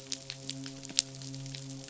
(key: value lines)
label: biophony, midshipman
recorder: SoundTrap 500